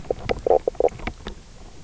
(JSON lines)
{"label": "biophony, knock croak", "recorder": "SoundTrap 300"}